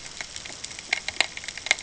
{"label": "ambient", "recorder": "HydroMoth"}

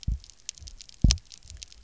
{"label": "biophony, double pulse", "recorder": "SoundTrap 300"}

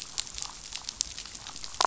{"label": "biophony, damselfish", "recorder": "SoundTrap 500"}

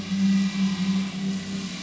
{"label": "anthrophony, boat engine", "recorder": "SoundTrap 500"}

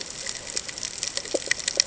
{"label": "ambient", "recorder": "HydroMoth"}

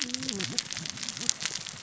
{"label": "biophony, cascading saw", "recorder": "SoundTrap 600 or HydroMoth"}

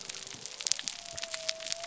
{"label": "biophony", "recorder": "SoundTrap 300"}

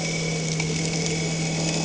{"label": "anthrophony, boat engine", "recorder": "HydroMoth"}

